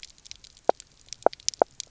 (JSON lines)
{"label": "biophony, knock croak", "recorder": "SoundTrap 300"}